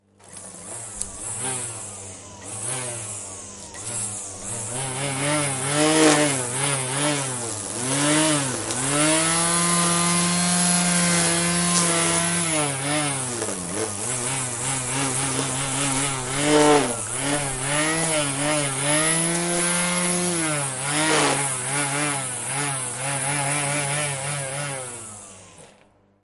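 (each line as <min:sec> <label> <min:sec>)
0:00.0 An electric grass strimmer turns on. 0:05.6
0:05.6 An electric lawnmower is cutting grass. 0:25.4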